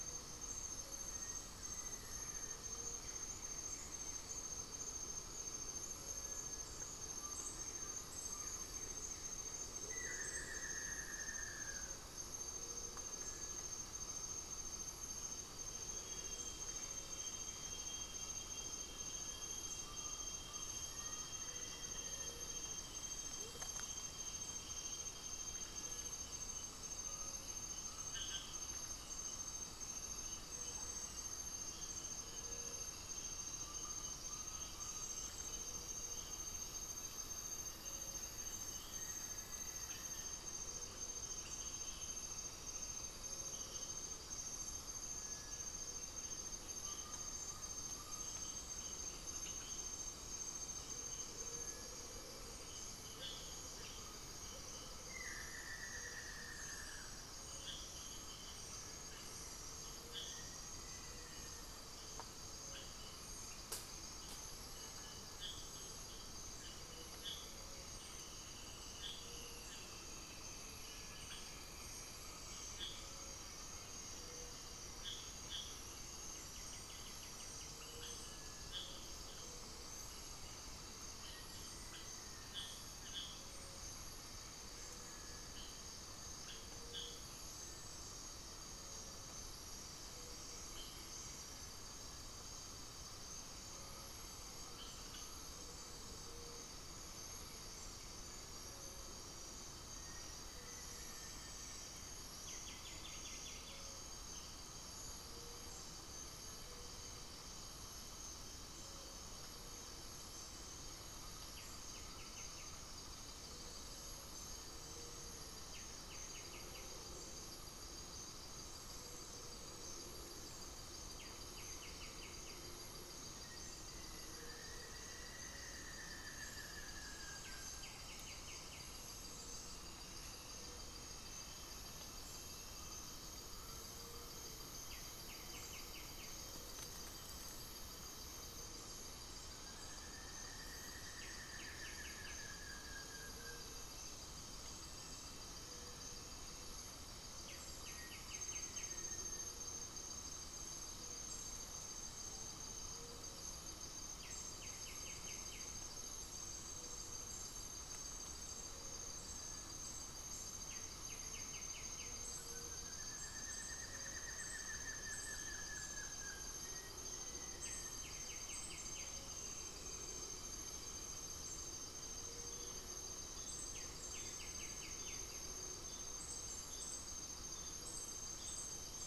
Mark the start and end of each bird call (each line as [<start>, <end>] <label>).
[0.00, 9.25] Blue-gray Saltator (Saltator coerulescens)
[0.00, 179.06] Gray-fronted Dove (Leptotila rufaxilla)
[0.65, 2.95] Black-faced Antthrush (Formicarius analis)
[6.85, 8.75] Undulated Tinamou (Crypturellus undulatus)
[9.65, 10.45] Amazonian Motmot (Momotus momota)
[9.75, 12.15] Buff-throated Woodcreeper (Xiphorhynchus guttatus)
[12.85, 13.95] Cinereous Tinamou (Crypturellus cinereus)
[15.65, 18.45] Blue-gray Saltator (Saltator coerulescens)
[19.65, 21.45] Undulated Tinamou (Crypturellus undulatus)
[20.55, 22.65] Black-faced Antthrush (Formicarius analis)
[23.25, 23.75] Amazonian Motmot (Momotus momota)
[26.15, 29.45] Undulated Tinamou (Crypturellus undulatus)
[32.85, 35.85] Undulated Tinamou (Crypturellus undulatus)
[38.15, 41.25] Black-faced Antthrush (Formicarius analis)
[41.15, 54.65] Elegant Woodcreeper (Xiphorhynchus elegans)
[44.45, 53.45] Cinereous Tinamou (Crypturellus cinereus)
[46.75, 48.85] Undulated Tinamou (Crypturellus undulatus)
[50.45, 55.85] Amazonian Motmot (Momotus momota)
[54.55, 57.95] Buff-throated Woodcreeper (Xiphorhynchus guttatus)
[59.95, 61.95] Black-faced Antthrush (Formicarius analis)
[64.25, 69.85] Cinereous Tinamou (Crypturellus cinereus)
[66.55, 68.45] unidentified bird
[67.55, 76.35] Elegant Woodcreeper (Xiphorhynchus elegans)
[76.25, 77.85] White-winged Becard (Pachyramphus polychopterus)
[81.05, 83.05] Black-faced Antthrush (Formicarius analis)
[87.35, 89.95] Black-faced Antthrush (Formicarius analis)
[93.85, 95.65] Undulated Tinamou (Crypturellus undulatus)
[96.95, 102.25] Blue-gray Saltator (Saltator coerulescens)
[99.75, 101.95] Black-faced Antthrush (Formicarius analis)
[101.85, 105.15] unidentified bird
[102.35, 104.05] White-winged Becard (Pachyramphus polychopterus)
[109.05, 111.65] Blue-gray Saltator (Saltator coerulescens)
[110.75, 113.15] Undulated Tinamou (Crypturellus undulatus)
[111.05, 122.85] White-winged Becard (Pachyramphus polychopterus)
[114.15, 116.55] Black-faced Antthrush (Formicarius analis)
[123.05, 128.15] Buff-throated Woodcreeper (Xiphorhynchus guttatus)
[127.35, 129.15] White-winged Becard (Pachyramphus polychopterus)
[132.65, 134.95] Undulated Tinamou (Crypturellus undulatus)
[134.55, 136.45] White-winged Becard (Pachyramphus polychopterus)
[138.55, 143.85] Buff-throated Woodcreeper (Xiphorhynchus guttatus)
[140.95, 142.65] White-winged Becard (Pachyramphus polychopterus)
[147.25, 149.25] White-winged Becard (Pachyramphus polychopterus)
[147.65, 149.55] Black-faced Antthrush (Formicarius analis)
[153.95, 155.85] White-winged Becard (Pachyramphus polychopterus)
[160.45, 162.35] White-winged Becard (Pachyramphus polychopterus)
[161.85, 167.35] Buff-throated Woodcreeper (Xiphorhynchus guttatus)
[166.55, 168.25] Black-faced Antthrush (Formicarius analis)
[167.35, 169.25] White-winged Becard (Pachyramphus polychopterus)
[169.15, 171.15] Elegant Woodcreeper (Xiphorhynchus elegans)
[173.55, 175.25] White-winged Becard (Pachyramphus polychopterus)